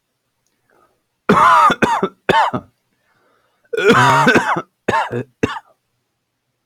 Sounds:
Cough